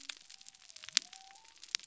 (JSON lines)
{"label": "biophony", "recorder": "SoundTrap 300"}